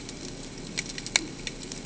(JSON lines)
{"label": "ambient", "recorder": "HydroMoth"}